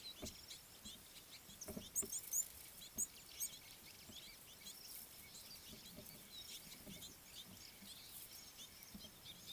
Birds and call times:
Red-cheeked Cordonbleu (Uraeginthus bengalus): 0:02.4
Red-billed Firefinch (Lagonosticta senegala): 0:07.1

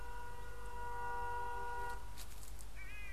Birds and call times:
White-bellied Go-away-bird (Corythaixoides leucogaster): 0:03.1

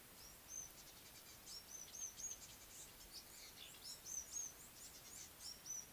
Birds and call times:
African Gray Flycatcher (Bradornis microrhynchus): 0:02.0

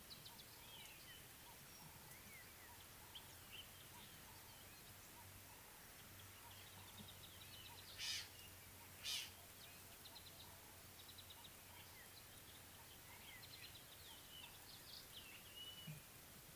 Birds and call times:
Ring-necked Dove (Streptopelia capicola): 0:02.0, 0:08.0

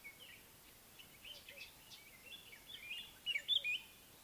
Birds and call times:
Northern Puffback (Dryoscopus gambensis): 0:01.6
White-browed Robin-Chat (Cossypha heuglini): 0:03.2

